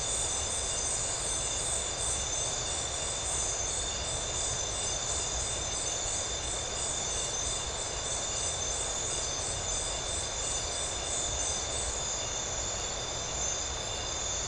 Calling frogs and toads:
none
Atlantic Forest, Brazil, 8:45pm

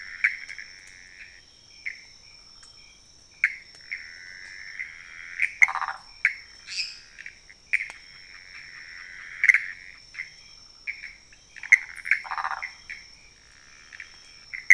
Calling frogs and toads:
Pithecopus azureus, waxy monkey tree frog (Phyllomedusa sauvagii), lesser tree frog (Dendropsophus minutus)
Cerrado, Brazil, 3:15am

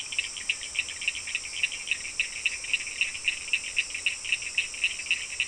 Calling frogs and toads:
Cochran's lime tree frog (Sphaenorhynchus surdus)
Atlantic Forest, Brazil, 6:15pm

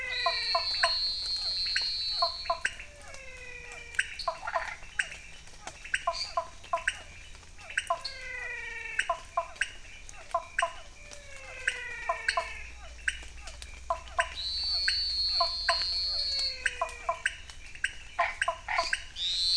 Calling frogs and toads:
menwig frog (Physalaemus albonotatus), Elachistocleis matogrosso, Physalaemus cuvieri, pointedbelly frog (Leptodactylus podicipinus), Cuyaba dwarf frog (Physalaemus nattereri), dwarf tree frog (Dendropsophus nanus), Chaco tree frog (Boana raniceps)
Cerrado, Brazil, 7:00pm

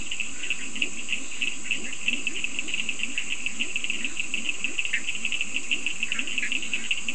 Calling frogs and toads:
Leptodactylus latrans, Cochran's lime tree frog (Sphaenorhynchus surdus), Bischoff's tree frog (Boana bischoffi), Scinax perereca
Atlantic Forest, Brazil, 4:00am

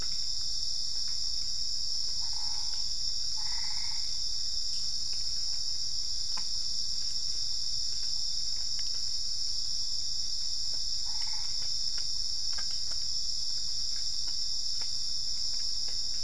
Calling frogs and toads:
Boana albopunctata
Cerrado, Brazil, 5:00am

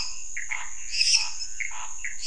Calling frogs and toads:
lesser tree frog (Dendropsophus minutus), Pithecopus azureus, Scinax fuscovarius
Cerrado, Brazil, 11:15pm

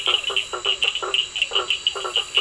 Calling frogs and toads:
blacksmith tree frog (Boana faber), two-colored oval frog (Elachistocleis bicolor), Cochran's lime tree frog (Sphaenorhynchus surdus)
Atlantic Forest, Brazil, 9:00pm

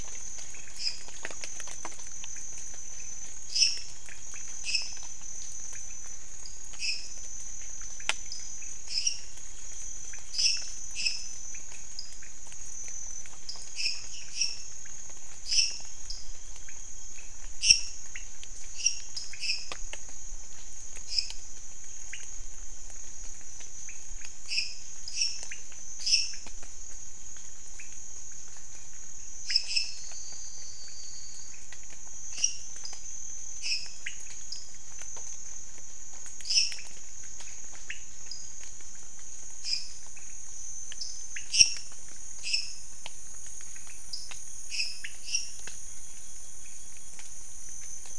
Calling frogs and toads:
lesser tree frog (Dendropsophus minutus), dwarf tree frog (Dendropsophus nanus), pointedbelly frog (Leptodactylus podicipinus), Elachistocleis matogrosso
Cerrado, Brazil, 12:30am

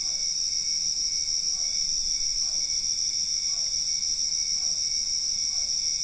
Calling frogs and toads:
Physalaemus cuvieri
Cerrado, Brazil, 9:00pm

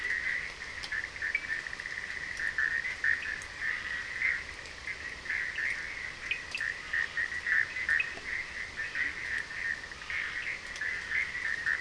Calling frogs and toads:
Bischoff's tree frog (Boana bischoffi), Scinax perereca, Cochran's lime tree frog (Sphaenorhynchus surdus), Leptodactylus latrans
Atlantic Forest, Brazil, 1:15am

